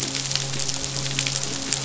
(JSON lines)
{"label": "biophony, midshipman", "recorder": "SoundTrap 500"}